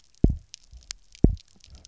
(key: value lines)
label: biophony, double pulse
recorder: SoundTrap 300